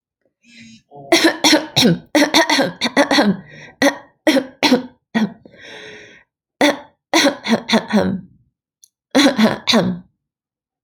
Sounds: Cough